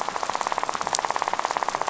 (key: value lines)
label: biophony, rattle
recorder: SoundTrap 500